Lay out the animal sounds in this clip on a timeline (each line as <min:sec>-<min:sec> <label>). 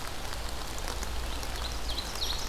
0:01.3-0:02.5 Ovenbird (Seiurus aurocapilla)